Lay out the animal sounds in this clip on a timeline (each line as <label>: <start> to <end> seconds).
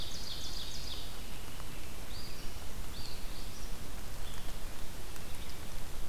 Ovenbird (Seiurus aurocapilla): 0.0 to 1.2 seconds
Eastern Phoebe (Sayornis phoebe): 1.9 to 3.6 seconds